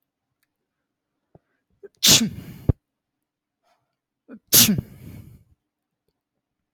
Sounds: Sneeze